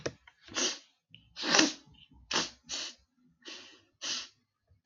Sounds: Sniff